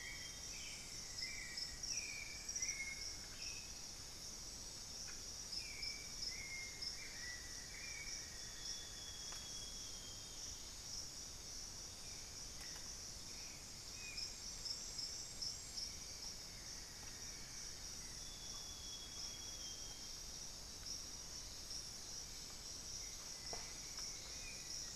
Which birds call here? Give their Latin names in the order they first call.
Cyanoloxia rothschildii, Turdus albicollis, Dendrocolaptes certhia, unidentified bird, Dendrexetastes rufigula, Formicarius analis